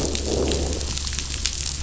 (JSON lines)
{"label": "biophony", "recorder": "SoundTrap 500"}